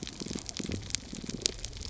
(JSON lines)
{"label": "biophony, damselfish", "recorder": "SoundTrap 300"}